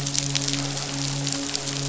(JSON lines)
{"label": "biophony, midshipman", "recorder": "SoundTrap 500"}